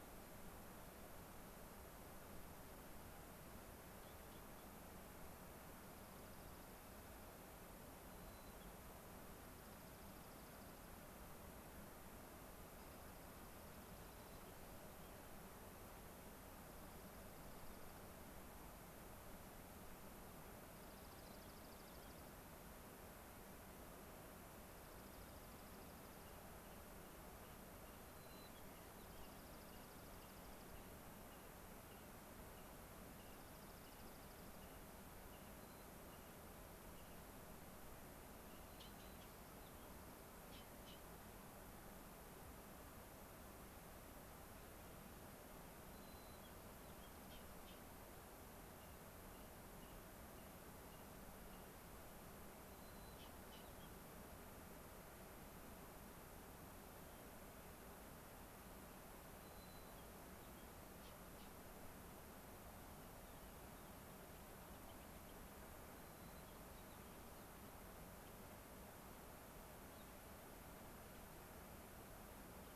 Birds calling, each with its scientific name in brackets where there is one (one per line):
Rock Wren (Salpinctes obsoletus)
Gray-crowned Rosy-Finch (Leucosticte tephrocotis)
Dark-eyed Junco (Junco hyemalis)
White-crowned Sparrow (Zonotrichia leucophrys)